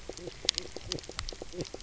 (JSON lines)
{"label": "biophony, knock croak", "recorder": "SoundTrap 300"}